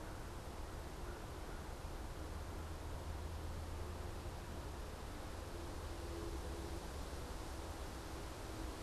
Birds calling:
American Crow (Corvus brachyrhynchos)

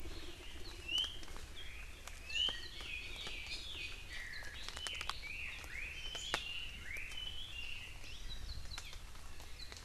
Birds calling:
Iiwi (Drepanis coccinea), Chinese Hwamei (Garrulax canorus), Hawaii Amakihi (Chlorodrepanis virens)

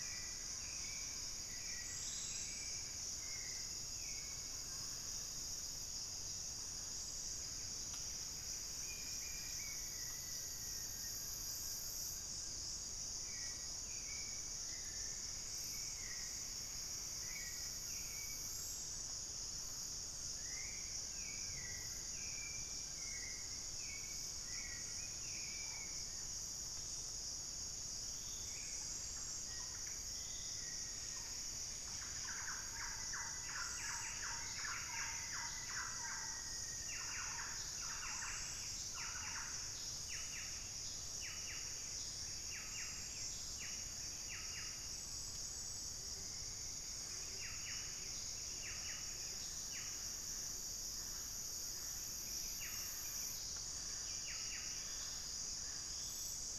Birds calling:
Mealy Parrot (Amazona farinosa), Western Striolated-Puffbird (Nystalus obamai), unidentified bird, Wing-barred Piprites (Piprites chloris), Buff-breasted Wren (Cantorchilus leucotis), Gilded Barbet (Capito auratus), Black-faced Antthrush (Formicarius analis), Thrush-like Wren (Campylorhynchus turdinus), Rufous-fronted Antthrush (Formicarius rufifrons), Hauxwell's Thrush (Turdus hauxwelli)

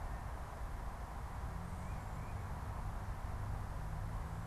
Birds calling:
Tufted Titmouse (Baeolophus bicolor)

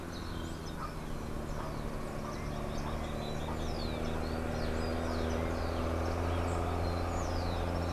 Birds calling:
unidentified bird, Rufous-collared Sparrow (Zonotrichia capensis)

